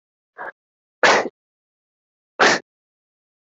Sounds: Sneeze